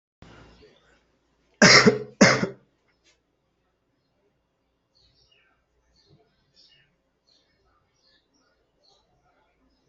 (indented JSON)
{
  "expert_labels": [
    {
      "quality": "ok",
      "cough_type": "dry",
      "dyspnea": false,
      "wheezing": false,
      "stridor": false,
      "choking": false,
      "congestion": false,
      "nothing": true,
      "diagnosis": "COVID-19",
      "severity": "mild"
    }
  ]
}